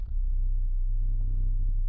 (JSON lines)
{"label": "anthrophony, boat engine", "recorder": "SoundTrap 300"}